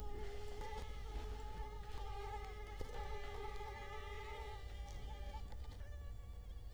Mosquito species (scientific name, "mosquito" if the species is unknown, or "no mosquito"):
Culex quinquefasciatus